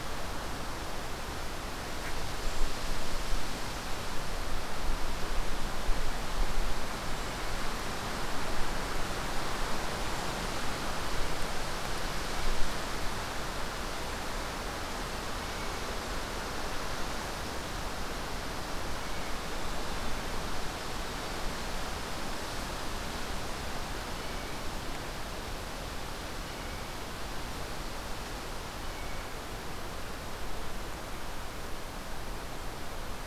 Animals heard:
Brown Creeper (Certhia americana)

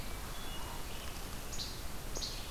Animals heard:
Least Flycatcher (Empidonax minimus), Hermit Thrush (Catharus guttatus)

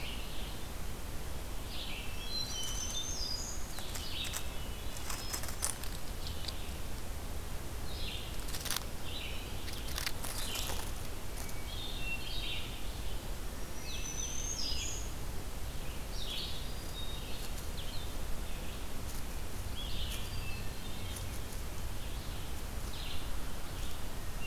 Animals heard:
Red-eyed Vireo (Vireo olivaceus), Black-throated Green Warbler (Setophaga virens), Blue-headed Vireo (Vireo solitarius), Hermit Thrush (Catharus guttatus)

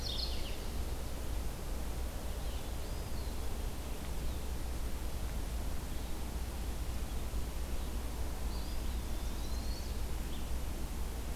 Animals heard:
Mourning Warbler (Geothlypis philadelphia), Eastern Wood-Pewee (Contopus virens), Chestnut-sided Warbler (Setophaga pensylvanica), Red-eyed Vireo (Vireo olivaceus)

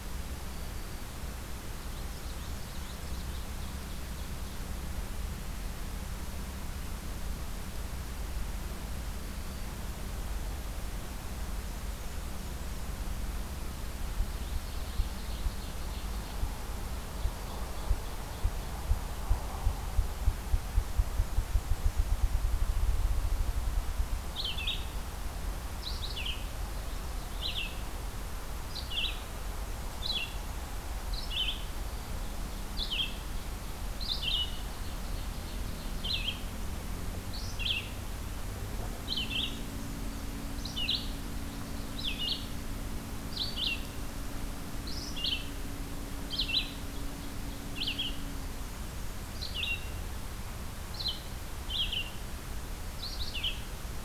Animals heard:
Ovenbird (Seiurus aurocapilla), Black-throated Green Warbler (Setophaga virens), Red-eyed Vireo (Vireo olivaceus), Common Yellowthroat (Geothlypis trichas), Black-and-white Warbler (Mniotilta varia)

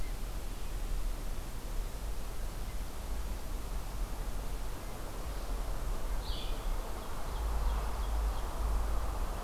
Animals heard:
Blue-headed Vireo (Vireo solitarius), Ovenbird (Seiurus aurocapilla)

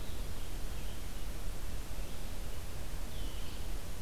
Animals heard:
Blue-headed Vireo (Vireo solitarius)

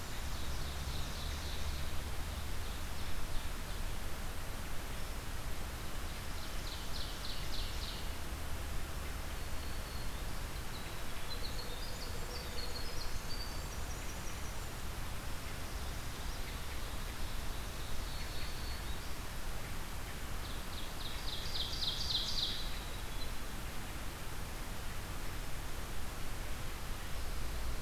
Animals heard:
Black-throated Green Warbler (Setophaga virens), Ovenbird (Seiurus aurocapilla), Winter Wren (Troglodytes hiemalis)

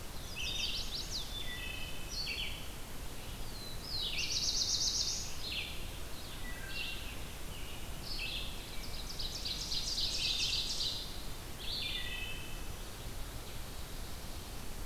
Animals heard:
American Robin (Turdus migratorius), Ovenbird (Seiurus aurocapilla), Black-throated Blue Warbler (Setophaga caerulescens), Chestnut-sided Warbler (Setophaga pensylvanica), Red-eyed Vireo (Vireo olivaceus), Wood Thrush (Hylocichla mustelina)

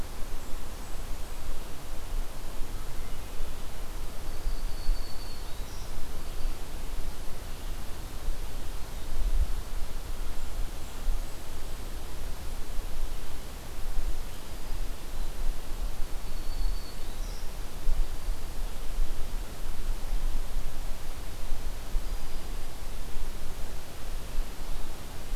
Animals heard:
Blackburnian Warbler (Setophaga fusca), Black-throated Green Warbler (Setophaga virens)

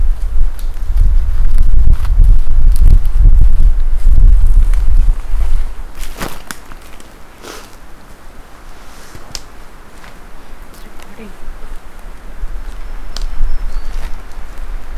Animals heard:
Black-throated Green Warbler (Setophaga virens)

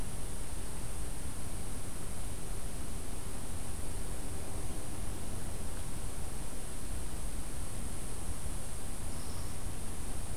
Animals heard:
unknown mammal

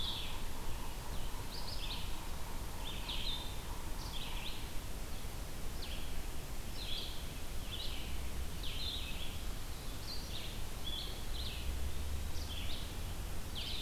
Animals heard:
Yellow-bellied Sapsucker (Sphyrapicus varius), Red-eyed Vireo (Vireo olivaceus), Blue-headed Vireo (Vireo solitarius)

